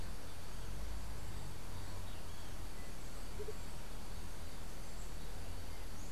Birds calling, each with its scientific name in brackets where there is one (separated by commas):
Andean Motmot (Momotus aequatorialis)